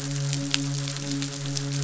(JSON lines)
{"label": "biophony, midshipman", "recorder": "SoundTrap 500"}